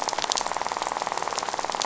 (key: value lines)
label: biophony, rattle
recorder: SoundTrap 500